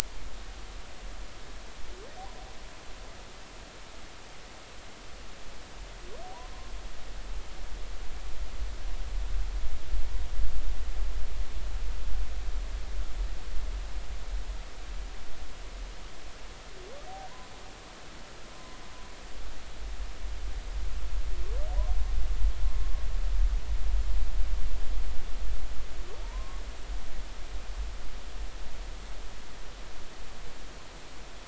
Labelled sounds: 6.3	6.7	humpback whale, 0.90 to 1.1 kHz
26.2	26.6	humpback whale, 0.83 to 1.1 kHz

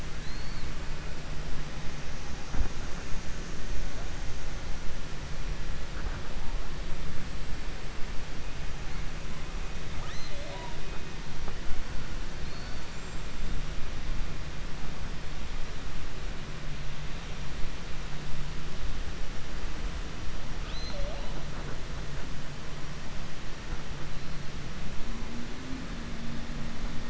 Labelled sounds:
0.1	0.7	killer whale, 3.9 to 4.5 kHz
12.4	13.3	killer whale, 3.6 to 7.6 kHz

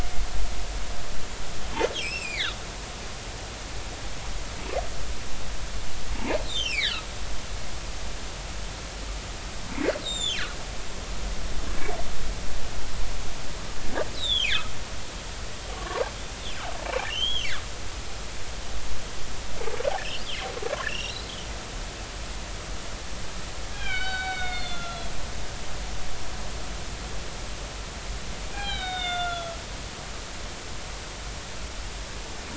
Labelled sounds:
1.9	2.6	humpback whale, 1.2 to 5.8 kHz
6.1	7.0	humpback whale, 0.83 to 6.4 kHz
10.0	10.4	humpback whale, 2.9 to 7.6 kHz
14.2	14.6	humpback whale, 2.9 to 4.1 kHz
15.7	16.0	humpback whale, 0.90 to 1.2 kHz
16.8	17.5	humpback whale, 2.3 to 3.4 kHz
20.8	21.3	humpback whale, 2.6 to 4.3 kHz
23.7	25.1	humpback whale, 1.3 to 4.6 kHz
28.5	29.6	humpback whale, 0.80 to 4.1 kHz

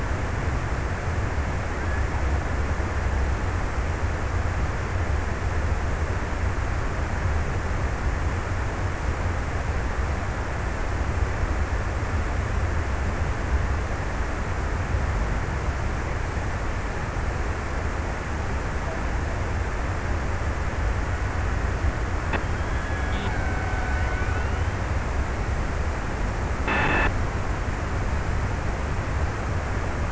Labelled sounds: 21.9	25.0	killer whale, Bigg's (transient), 0.51 to 2.7 kHz

